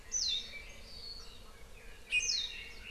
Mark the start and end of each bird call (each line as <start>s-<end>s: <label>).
0.1s-0.5s: Warbling White-eye (Zosterops japonicus)
1.8s-2.9s: Red-billed Leiothrix (Leiothrix lutea)
2.1s-2.5s: Apapane (Himatione sanguinea)
2.2s-2.7s: Warbling White-eye (Zosterops japonicus)